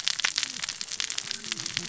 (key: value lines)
label: biophony, cascading saw
recorder: SoundTrap 600 or HydroMoth